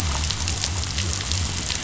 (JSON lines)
{"label": "biophony", "recorder": "SoundTrap 500"}